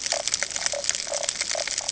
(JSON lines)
{"label": "ambient", "recorder": "HydroMoth"}